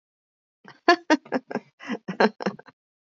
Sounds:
Laughter